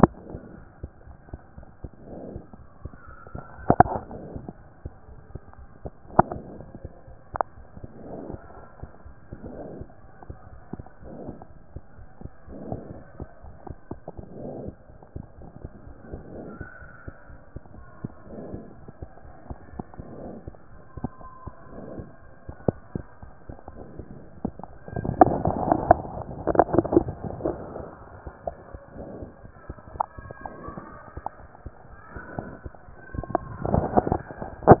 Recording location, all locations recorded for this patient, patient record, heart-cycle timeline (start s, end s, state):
mitral valve (MV)
aortic valve (AV)+mitral valve (MV)
#Age: Child
#Sex: Female
#Height: 99.0 cm
#Weight: 17.6 kg
#Pregnancy status: False
#Murmur: Absent
#Murmur locations: nan
#Most audible location: nan
#Systolic murmur timing: nan
#Systolic murmur shape: nan
#Systolic murmur grading: nan
#Systolic murmur pitch: nan
#Systolic murmur quality: nan
#Diastolic murmur timing: nan
#Diastolic murmur shape: nan
#Diastolic murmur grading: nan
#Diastolic murmur pitch: nan
#Diastolic murmur quality: nan
#Outcome: Abnormal
#Campaign: 2014 screening campaign
0.00	0.57	unannotated
0.57	0.82	diastole
0.82	0.92	S1
0.92	1.06	systole
1.06	1.16	S2
1.16	1.32	diastole
1.32	1.42	S1
1.42	1.56	systole
1.56	1.66	S2
1.66	1.84	diastole
1.84	1.92	S1
1.92	2.04	systole
2.04	2.16	S2
2.16	2.34	diastole
2.34	2.42	S1
2.42	2.53	systole
2.53	2.66	S2
2.66	2.82	diastole
2.82	2.92	S1
2.92	3.06	systole
3.06	3.16	S2
3.16	3.35	diastole
3.35	34.80	unannotated